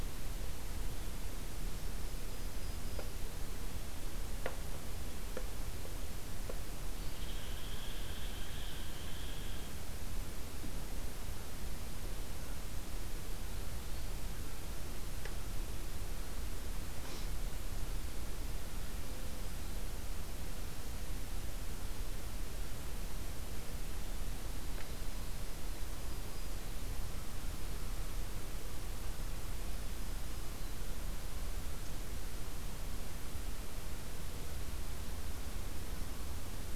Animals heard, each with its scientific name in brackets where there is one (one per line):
Red Squirrel (Tamiasciurus hudsonicus)
Black-throated Green Warbler (Setophaga virens)